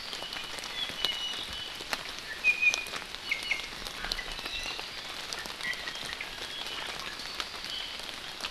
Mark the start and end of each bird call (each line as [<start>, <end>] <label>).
[0.13, 1.83] Iiwi (Drepanis coccinea)
[2.23, 2.93] Iiwi (Drepanis coccinea)
[3.23, 4.83] Iiwi (Drepanis coccinea)
[5.33, 7.23] Iiwi (Drepanis coccinea)
[7.63, 7.93] Iiwi (Drepanis coccinea)